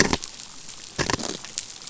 {"label": "biophony", "recorder": "SoundTrap 500"}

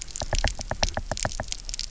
{"label": "biophony, knock", "recorder": "SoundTrap 300"}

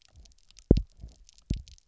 {"label": "biophony, double pulse", "recorder": "SoundTrap 300"}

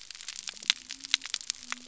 {"label": "biophony", "recorder": "SoundTrap 300"}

